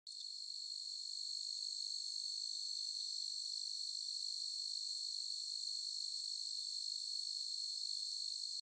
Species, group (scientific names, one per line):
Oecanthus quadripunctatus
Orthoptera